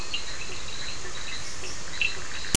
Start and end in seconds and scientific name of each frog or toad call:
0.0	1.6	Boana leptolineata
0.0	2.3	Boana bischoffi
0.0	2.3	Physalaemus cuvieri
0.0	2.5	Sphaenorhynchus surdus